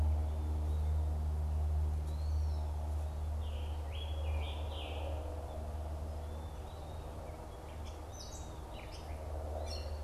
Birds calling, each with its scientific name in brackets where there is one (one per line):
Scarlet Tanager (Piranga olivacea)
Eastern Wood-Pewee (Contopus virens)
Gray Catbird (Dumetella carolinensis)